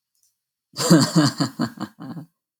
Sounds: Laughter